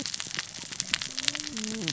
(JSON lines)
{"label": "biophony, cascading saw", "recorder": "SoundTrap 600 or HydroMoth"}